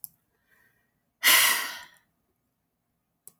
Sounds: Sigh